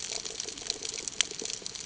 {"label": "ambient", "recorder": "HydroMoth"}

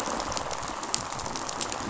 {"label": "biophony, rattle response", "recorder": "SoundTrap 500"}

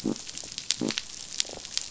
{"label": "biophony", "recorder": "SoundTrap 500"}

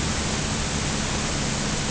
{"label": "anthrophony, boat engine", "recorder": "HydroMoth"}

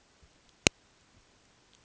{"label": "ambient", "recorder": "HydroMoth"}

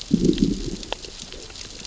{"label": "biophony, growl", "recorder": "SoundTrap 600 or HydroMoth"}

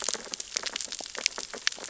{"label": "biophony, sea urchins (Echinidae)", "recorder": "SoundTrap 600 or HydroMoth"}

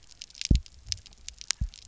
{"label": "biophony, double pulse", "recorder": "SoundTrap 300"}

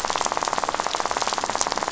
{"label": "biophony, rattle", "recorder": "SoundTrap 500"}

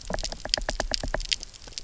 {"label": "biophony, knock", "recorder": "SoundTrap 300"}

